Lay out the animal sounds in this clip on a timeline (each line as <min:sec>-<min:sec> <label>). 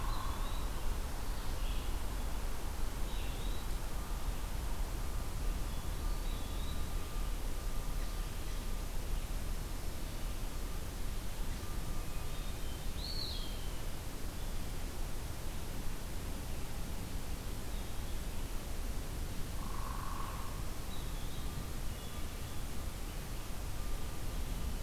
0:00.0-0:00.6 Hairy Woodpecker (Dryobates villosus)
0:00.0-0:00.7 Eastern Wood-Pewee (Contopus virens)
0:00.0-0:08.3 Red-eyed Vireo (Vireo olivaceus)
0:05.5-0:07.0 Hermit Thrush (Catharus guttatus)
0:06.2-0:07.2 Eastern Wood-Pewee (Contopus virens)
0:11.8-0:12.9 Hermit Thrush (Catharus guttatus)
0:12.7-0:13.7 Eastern Wood-Pewee (Contopus virens)
0:19.5-0:20.6 Hairy Woodpecker (Dryobates villosus)
0:20.8-0:21.6 Eastern Wood-Pewee (Contopus virens)
0:21.7-0:22.7 Hermit Thrush (Catharus guttatus)